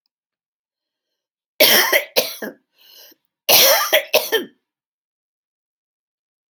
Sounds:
Cough